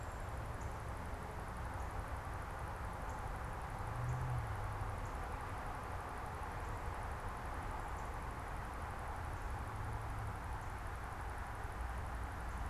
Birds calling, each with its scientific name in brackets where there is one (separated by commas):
Northern Cardinal (Cardinalis cardinalis)